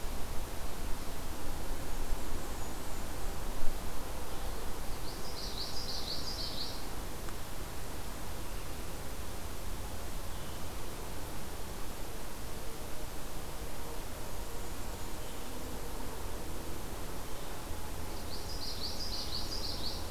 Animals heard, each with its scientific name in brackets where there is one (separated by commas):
Blackburnian Warbler (Setophaga fusca), Common Yellowthroat (Geothlypis trichas)